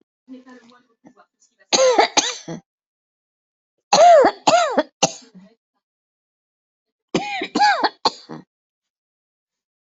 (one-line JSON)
{"expert_labels": [{"quality": "good", "cough_type": "dry", "dyspnea": false, "wheezing": false, "stridor": false, "choking": false, "congestion": false, "nothing": true, "diagnosis": "upper respiratory tract infection", "severity": "mild"}], "age": 56, "gender": "female", "respiratory_condition": false, "fever_muscle_pain": false, "status": "COVID-19"}